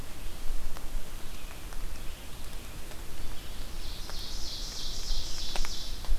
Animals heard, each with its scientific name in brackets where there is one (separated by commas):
Ovenbird (Seiurus aurocapilla)